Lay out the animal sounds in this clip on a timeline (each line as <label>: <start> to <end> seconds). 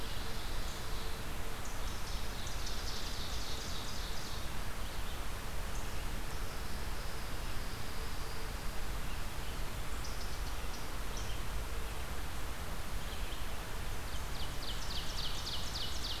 Ovenbird (Seiurus aurocapilla): 0.0 to 1.4 seconds
Red-eyed Vireo (Vireo olivaceus): 0.0 to 16.2 seconds
unknown mammal: 0.0 to 16.2 seconds
Ovenbird (Seiurus aurocapilla): 1.8 to 4.5 seconds
Ovenbird (Seiurus aurocapilla): 13.8 to 16.2 seconds